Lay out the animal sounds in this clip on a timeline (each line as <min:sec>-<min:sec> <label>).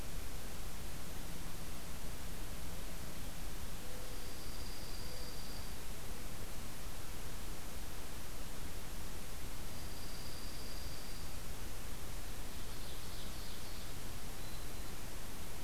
0:03.9-0:05.8 Dark-eyed Junco (Junco hyemalis)
0:09.6-0:11.4 Dark-eyed Junco (Junco hyemalis)
0:12.3-0:13.9 Ovenbird (Seiurus aurocapilla)
0:14.2-0:15.0 Black-throated Green Warbler (Setophaga virens)